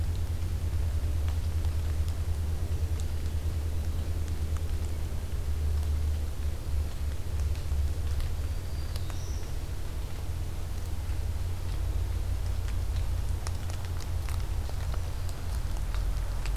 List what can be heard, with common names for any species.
Black-throated Green Warbler